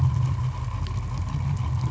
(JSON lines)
{"label": "anthrophony, boat engine", "recorder": "SoundTrap 500"}